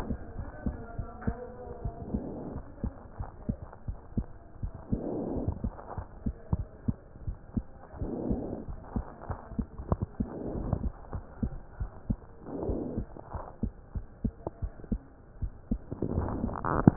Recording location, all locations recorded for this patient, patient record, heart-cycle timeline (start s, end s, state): pulmonary valve (PV)
aortic valve (AV)+pulmonary valve (PV)+tricuspid valve (TV)+mitral valve (MV)
#Age: Child
#Sex: Male
#Height: 101.0 cm
#Weight: 15.2 kg
#Pregnancy status: False
#Murmur: Absent
#Murmur locations: nan
#Most audible location: nan
#Systolic murmur timing: nan
#Systolic murmur shape: nan
#Systolic murmur grading: nan
#Systolic murmur pitch: nan
#Systolic murmur quality: nan
#Diastolic murmur timing: nan
#Diastolic murmur shape: nan
#Diastolic murmur grading: nan
#Diastolic murmur pitch: nan
#Diastolic murmur quality: nan
#Outcome: Abnormal
#Campaign: 2015 screening campaign
0.00	0.18	unannotated
0.18	0.36	diastole
0.36	0.46	S1
0.46	0.64	systole
0.64	0.78	S2
0.78	0.94	diastole
0.94	1.06	S1
1.06	1.26	systole
1.26	1.36	S2
1.36	1.82	diastole
1.82	1.94	S1
1.94	2.12	systole
2.12	2.26	S2
2.26	2.48	diastole
2.48	2.62	S1
2.62	2.82	systole
2.82	2.94	S2
2.94	3.18	diastole
3.18	3.28	S1
3.28	3.46	systole
3.46	3.58	S2
3.58	3.86	diastole
3.86	3.98	S1
3.98	4.16	systole
4.16	4.30	S2
4.30	4.60	diastole
4.60	4.72	S1
4.72	4.92	systole
4.92	5.06	S2
5.06	5.28	diastole
5.28	5.46	S1
5.46	5.60	systole
5.60	5.74	S2
5.74	5.96	diastole
5.96	6.06	S1
6.06	6.22	systole
6.22	6.36	S2
6.36	6.54	diastole
6.54	6.68	S1
6.68	6.84	systole
6.84	6.98	S2
6.98	7.24	diastole
7.24	7.36	S1
7.36	7.56	systole
7.56	7.70	S2
7.70	8.00	diastole
8.00	8.16	S1
8.16	8.28	systole
8.28	8.44	S2
8.44	8.66	diastole
8.66	8.78	S1
8.78	8.92	systole
8.92	9.06	S2
9.06	9.28	diastole
9.28	9.38	S1
9.38	9.56	systole
9.56	9.68	S2
9.68	9.86	diastole
9.86	10.02	S1
10.02	10.16	systole
10.16	10.30	S2
10.30	10.50	diastole
10.50	10.66	S1
10.66	10.80	systole
10.80	10.94	S2
10.94	11.11	diastole
11.11	11.24	S1
11.24	11.40	systole
11.40	11.54	S2
11.54	11.76	diastole
11.76	11.88	S1
11.88	12.06	systole
12.06	12.20	S2
12.20	12.65	diastole
12.65	12.78	S1
12.78	12.94	systole
12.94	13.08	S2
13.08	13.32	diastole
13.32	13.44	S1
13.44	13.59	systole
13.59	13.72	S2
13.72	13.93	diastole
13.93	14.04	S1
14.04	14.20	systole
14.20	14.32	S2
14.32	14.58	diastole
14.58	14.70	S1
14.70	14.88	systole
14.88	15.04	S2
15.04	15.34	diastole
15.34	15.50	S1
15.50	15.68	systole
15.68	15.82	S2
15.82	16.10	diastole
16.10	16.96	unannotated